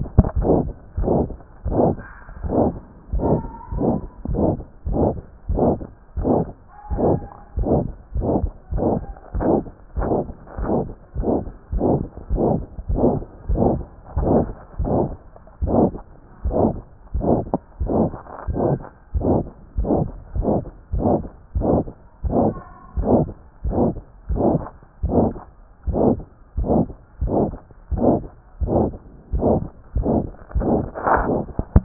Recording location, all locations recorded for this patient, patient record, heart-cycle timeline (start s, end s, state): tricuspid valve (TV)
aortic valve (AV)+pulmonary valve (PV)+tricuspid valve (TV)+mitral valve (MV)
#Age: Child
#Sex: Female
#Height: 136.0 cm
#Weight: 26.3 kg
#Pregnancy status: False
#Murmur: Present
#Murmur locations: aortic valve (AV)+mitral valve (MV)+pulmonary valve (PV)+tricuspid valve (TV)
#Most audible location: mitral valve (MV)
#Systolic murmur timing: Mid-systolic
#Systolic murmur shape: Diamond
#Systolic murmur grading: III/VI or higher
#Systolic murmur pitch: High
#Systolic murmur quality: Harsh
#Diastolic murmur timing: nan
#Diastolic murmur shape: nan
#Diastolic murmur grading: nan
#Diastolic murmur pitch: nan
#Diastolic murmur quality: nan
#Outcome: Abnormal
#Campaign: 2014 screening campaign
0.00	2.42	unannotated
2.42	2.50	S1
2.50	2.75	systole
2.75	2.81	S2
2.81	3.14	diastole
3.14	3.22	S1
3.22	3.44	systole
3.44	3.49	S2
3.49	3.72	diastole
3.72	3.80	S1
3.80	4.03	systole
4.03	4.08	S2
4.08	4.30	diastole
4.30	4.37	S1
4.37	4.60	systole
4.60	4.65	S2
4.65	4.87	diastole
4.87	4.94	S1
4.94	5.17	systole
5.17	5.22	S2
5.22	5.48	diastole
5.48	31.84	unannotated